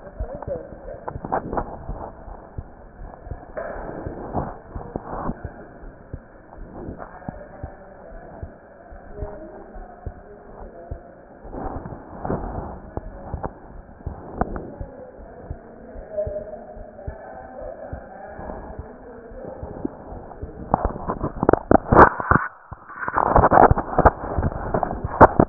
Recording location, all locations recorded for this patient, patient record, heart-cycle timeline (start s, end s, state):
aortic valve (AV)
aortic valve (AV)+pulmonary valve (PV)+tricuspid valve (TV)+mitral valve (MV)
#Age: Child
#Sex: Female
#Height: 129.0 cm
#Weight: 28.8 kg
#Pregnancy status: False
#Murmur: Unknown
#Murmur locations: nan
#Most audible location: nan
#Systolic murmur timing: nan
#Systolic murmur shape: nan
#Systolic murmur grading: nan
#Systolic murmur pitch: nan
#Systolic murmur quality: nan
#Diastolic murmur timing: nan
#Diastolic murmur shape: nan
#Diastolic murmur grading: nan
#Diastolic murmur pitch: nan
#Diastolic murmur quality: nan
#Outcome: Normal
#Campaign: 2015 screening campaign
0.00	8.06	unannotated
8.06	8.26	S1
8.26	8.39	systole
8.39	8.56	S2
8.56	8.91	diastole
8.91	9.05	S1
9.05	9.17	systole
9.17	9.32	S2
9.32	9.76	diastole
9.76	9.88	S1
9.88	10.02	systole
10.02	10.16	S2
10.16	10.57	diastole
10.57	10.72	S1
10.72	10.88	systole
10.88	11.00	S2
11.00	11.43	diastole
11.43	11.56	S1
11.56	11.74	systole
11.74	11.84	S2
11.84	12.26	diastole
12.26	12.44	S1
12.44	12.52	systole
12.52	12.66	S2
12.66	13.03	diastole
13.03	13.16	S1
13.16	13.31	systole
13.31	13.46	S2
13.46	13.72	diastole
13.72	13.86	S1
13.86	14.02	systole
14.02	14.16	S2
14.16	14.48	diastole
14.48	14.60	S1
14.60	14.78	systole
14.78	14.87	S2
14.87	15.17	diastole
15.17	15.30	S1
15.30	15.48	systole
15.48	15.57	S2
15.57	15.94	diastole
15.94	16.06	S1
16.06	16.25	systole
16.25	16.33	S2
16.33	16.75	diastole
16.75	16.86	S1
16.86	17.05	systole
17.05	17.17	S2
17.17	17.58	diastole
17.58	17.71	S1
17.71	17.90	systole
17.90	18.01	S2
18.01	25.49	unannotated